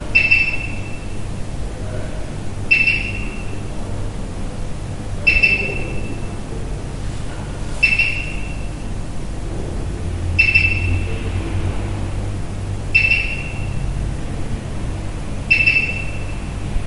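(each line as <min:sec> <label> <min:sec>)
0:00.0 A device beeps loudly and repeatedly. 0:16.9
0:01.0 Ambient street noise. 0:05.2
0:01.6 Indistinct speech in the background. 0:02.4
0:06.1 Ambient street noise. 0:07.8
0:08.4 Ambient street noise. 0:10.4
0:11.0 Ambient street noise. 0:12.9
0:13.5 Ambient street noise. 0:15.5
0:16.2 Ambient street noise. 0:16.9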